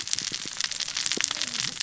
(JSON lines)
{"label": "biophony, cascading saw", "recorder": "SoundTrap 600 or HydroMoth"}